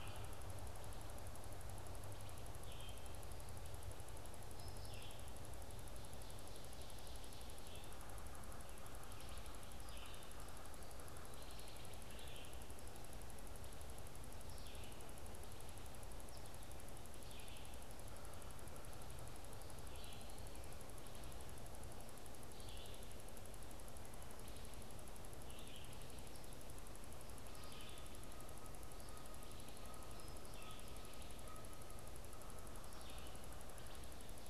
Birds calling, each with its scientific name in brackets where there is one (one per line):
Wood Thrush (Hylocichla mustelina)
Canada Goose (Branta canadensis)
Red-eyed Vireo (Vireo olivaceus)